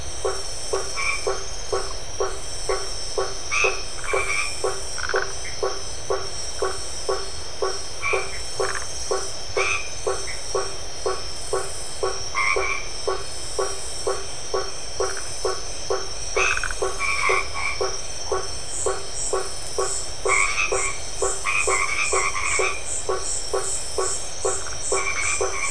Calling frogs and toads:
blacksmith tree frog, white-edged tree frog, Phyllomedusa distincta, Dendropsophus elegans
Atlantic Forest, Brazil, 9:00pm

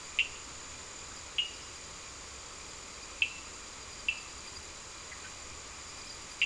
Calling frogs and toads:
Cochran's lime tree frog
Atlantic Forest, Brazil, 9:00pm

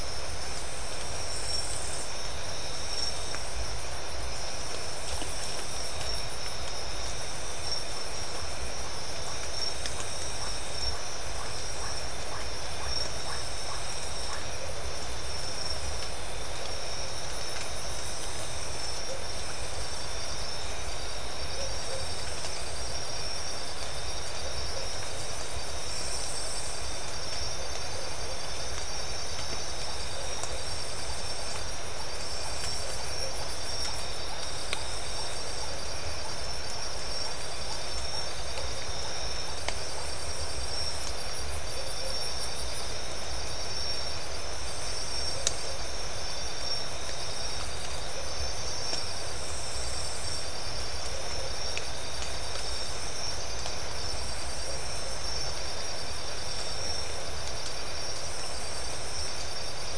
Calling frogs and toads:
none
Atlantic Forest, Brazil, 3:30am

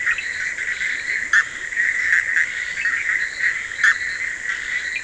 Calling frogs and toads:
Bischoff's tree frog, fine-lined tree frog, Scinax perereca
Atlantic Forest, Brazil, 12:30am

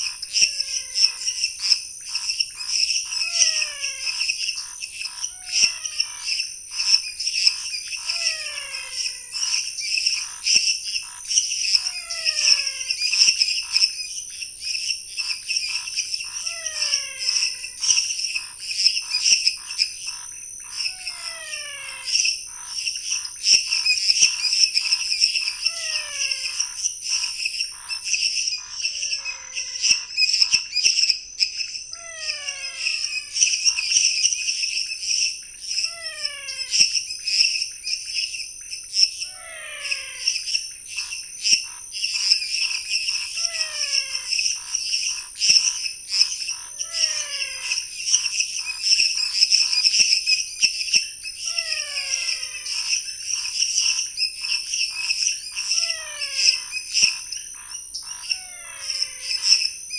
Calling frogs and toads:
menwig frog, Scinax fuscovarius, lesser tree frog, pointedbelly frog
Cerrado, Brazil, 10:30pm

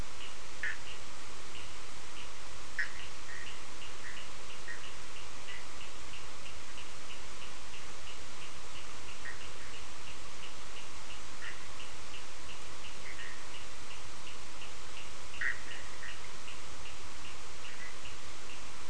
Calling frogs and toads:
Bischoff's tree frog, Cochran's lime tree frog
Atlantic Forest, Brazil, 2:15am

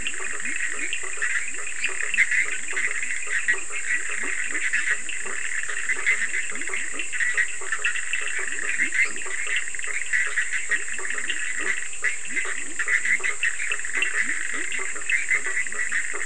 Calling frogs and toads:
Cochran's lime tree frog, Bischoff's tree frog, blacksmith tree frog, Leptodactylus latrans, lesser tree frog
Atlantic Forest, Brazil, 12:00am

